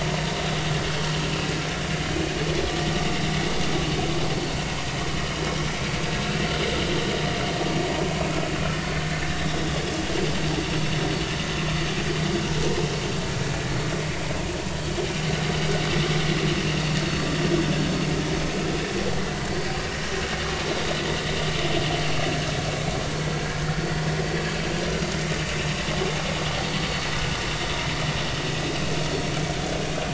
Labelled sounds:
9.3	9.6	vessel noise, 3.4 to 4.0 kHz
21.9	22.2	vessel noise, 4.3 to 4.4 kHz
23.3	23.5	vessel noise, 4.4 to 4.5 kHz

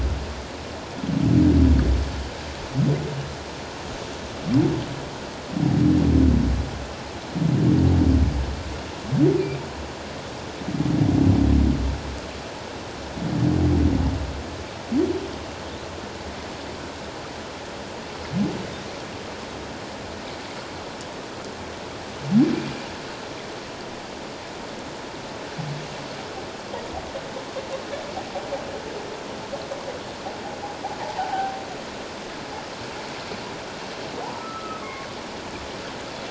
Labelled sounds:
9.3	9.6	humpback whale, 2.3 to 2.5 kHz
31.0	31.6	humpback whale, 0.78 to 0.97 kHz
34.3	35.1	humpback whale, 1.0 to 1.4 kHz

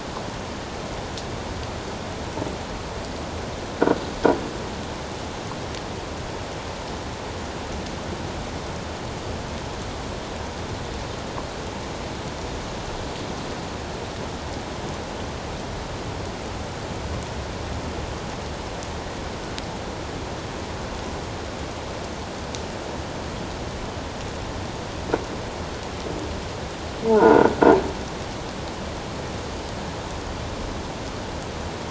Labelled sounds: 27.0	27.5	croaking sound likely from a nearby submerged object, 0.78 to 1.6 kHz

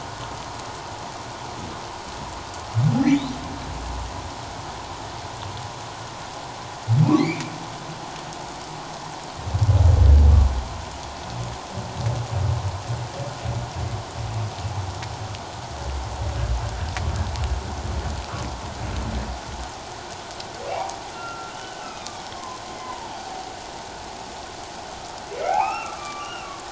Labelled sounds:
7.2	7.4	humpback whale, 1.9 to 4.5 kHz
20.7	23.1	humpback whale, 0.78 to 5.6 kHz
25.3	26.5	humpback whale, 0.78 to 3.0 kHz

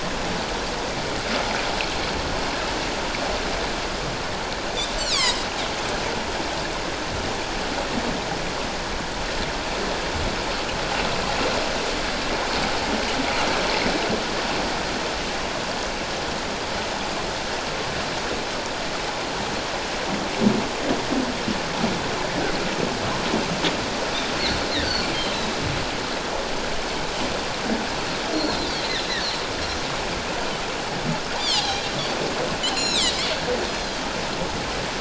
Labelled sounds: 5.0	5.4	Pacific white-sided dolphin, 0.91 to 8.0 kHz
24.8	25.1	Pacific white-sided dolphin, 4.2 to 4.7 kHz
28.3	29.0	Pacific white-sided dolphin, 3.4 to 4.8 kHz
31.5	31.9	Pacific white-sided dolphin, 0.78 to 4.2 kHz
32.6	33.1	Pacific white-sided dolphin, 1.8 to 8.0 kHz

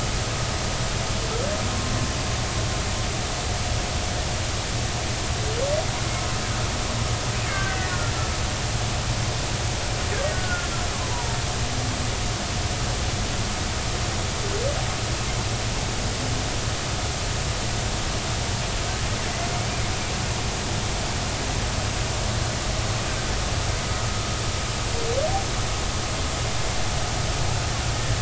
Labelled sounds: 7.5	8.0	killer whale, Bigg's (transient), 1.4 to 2.0 kHz
10.3	10.7	killer whale, Bigg's (transient), 1.3 to 1.5 kHz

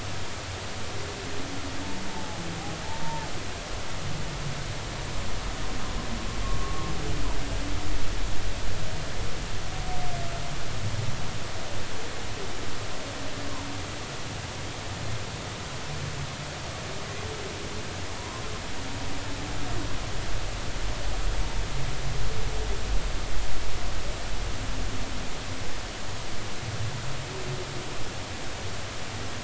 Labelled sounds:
2.1	3.3	humpback whale, 0.80 to 0.99 kHz
6.4	6.9	humpback whale, 1.0 to 1.2 kHz
18.2	18.4	humpback whale, 0.93 to 1.1 kHz

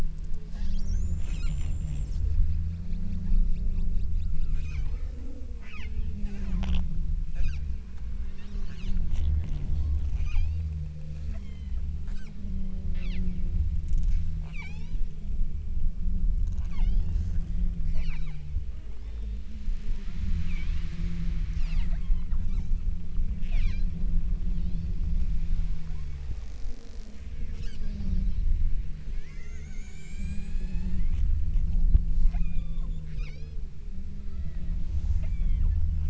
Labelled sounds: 4.5	5.4	killer whale, southern Alaska resident, 0.72 to 8.0 kHz
10.2	10.8	killer whale, southern Alaska resident, 0.57 to 7.5 kHz
11.2	11.9	killer whale, southern Alaska resident, 0.76 to 8.0 kHz
14.4	15.1	killer whale, southern Alaska resident, 0.51 to 8.0 kHz
16.6	17.1	killer whale, southern Alaska resident, 0.55 to 8.0 kHz
18.0	18.6	killer whale, southern Alaska resident, 0.55 to 8.0 kHz
19.0	19.6	killer whale, southern Alaska resident, 0.85 to 5.5 kHz
20.5	21.0	killer whale, southern Alaska resident, 2.1 to 4.2 kHz
21.6	22.9	killer whale, southern Alaska resident, 0.49 to 8.0 kHz
23.5	24.0	killer whale, southern Alaska resident, 0.55 to 8.0 kHz
24.5	25.1	killer whale, southern Alaska resident, 2.4 to 5.5 kHz
25.9	26.5	killer whale, southern Alaska resident, 0.89 to 7.0 kHz
29.3	31.9	killer whale, southern Alaska resident, 0.51 to 8.0 kHz
32.3	33.8	killer whale, southern Alaska resident, 0.55 to 8.0 kHz
34.3	35.8	killer whale, southern Alaska resident, 0.57 to 8.0 kHz

